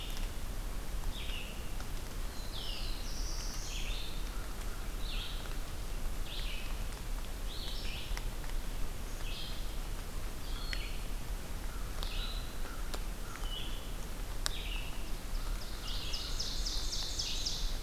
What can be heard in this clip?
Red-eyed Vireo, Black-throated Blue Warbler, American Crow, Ovenbird